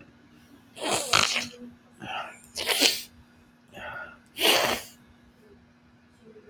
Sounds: Sniff